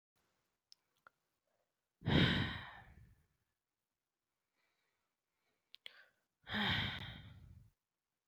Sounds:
Sigh